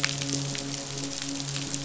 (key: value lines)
label: biophony, midshipman
recorder: SoundTrap 500